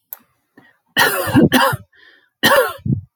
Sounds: Cough